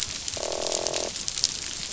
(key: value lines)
label: biophony, croak
recorder: SoundTrap 500